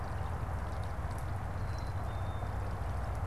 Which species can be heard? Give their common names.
Black-capped Chickadee